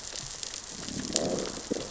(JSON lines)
{"label": "biophony, growl", "recorder": "SoundTrap 600 or HydroMoth"}